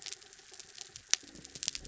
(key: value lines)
label: anthrophony, mechanical
recorder: SoundTrap 300